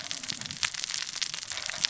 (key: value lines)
label: biophony, cascading saw
recorder: SoundTrap 600 or HydroMoth